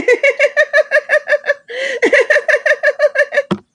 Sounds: Laughter